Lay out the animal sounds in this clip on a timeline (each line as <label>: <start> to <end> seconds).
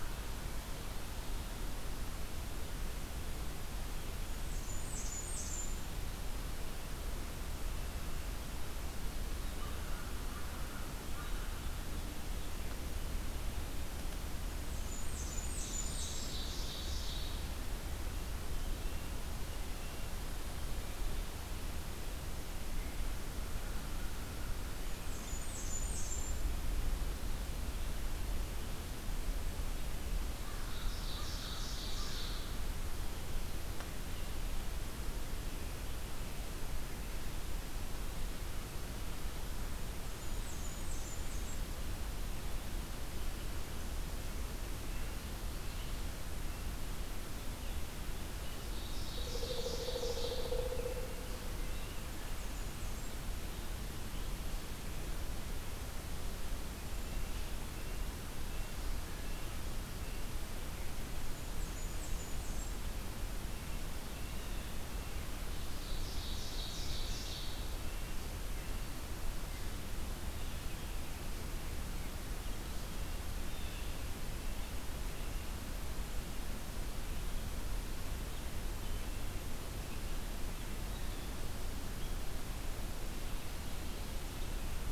Blackburnian Warbler (Setophaga fusca): 4.1 to 5.9 seconds
American Crow (Corvus brachyrhynchos): 9.5 to 11.6 seconds
Blackburnian Warbler (Setophaga fusca): 14.4 to 16.4 seconds
Ovenbird (Seiurus aurocapilla): 15.5 to 17.3 seconds
American Crow (Corvus brachyrhynchos): 23.3 to 24.8 seconds
Blackburnian Warbler (Setophaga fusca): 24.9 to 26.5 seconds
American Crow (Corvus brachyrhynchos): 30.3 to 32.4 seconds
Ovenbird (Seiurus aurocapilla): 30.5 to 32.5 seconds
Blackburnian Warbler (Setophaga fusca): 40.0 to 41.8 seconds
Ovenbird (Seiurus aurocapilla): 48.5 to 50.6 seconds
Pileated Woodpecker (Dryocopus pileatus): 49.0 to 51.2 seconds
Blackburnian Warbler (Setophaga fusca): 52.1 to 53.3 seconds
Red-breasted Nuthatch (Sitta canadensis): 57.0 to 60.4 seconds
Blackburnian Warbler (Setophaga fusca): 61.2 to 63.0 seconds
Blue Jay (Cyanocitta cristata): 64.2 to 65.0 seconds
Ovenbird (Seiurus aurocapilla): 65.4 to 67.7 seconds
Blue Jay (Cyanocitta cristata): 73.4 to 74.0 seconds
Blue Jay (Cyanocitta cristata): 80.8 to 81.4 seconds